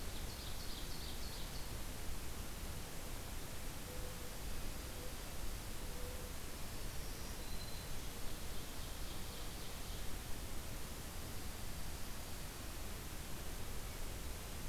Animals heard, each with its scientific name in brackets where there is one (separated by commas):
Mourning Dove (Zenaida macroura), Black-throated Green Warbler (Setophaga virens), Ovenbird (Seiurus aurocapilla)